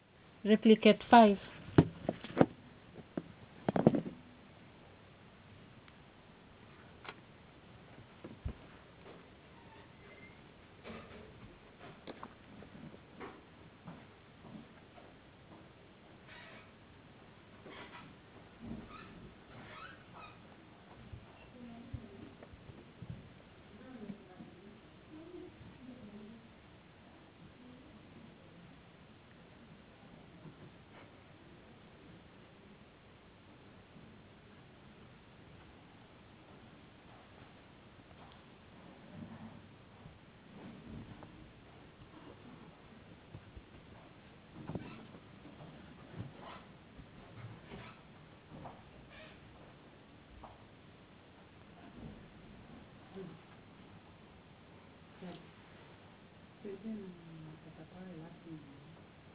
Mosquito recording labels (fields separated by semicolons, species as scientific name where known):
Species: no mosquito; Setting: insect culture